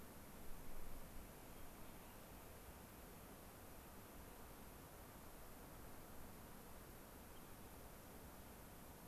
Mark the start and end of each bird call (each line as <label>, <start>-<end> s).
Hermit Thrush (Catharus guttatus), 1.5-2.2 s
unidentified bird, 7.3-7.4 s